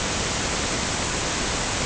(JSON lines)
{"label": "ambient", "recorder": "HydroMoth"}